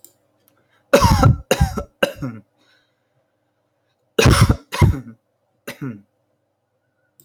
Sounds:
Cough